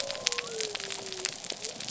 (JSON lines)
{"label": "biophony", "recorder": "SoundTrap 300"}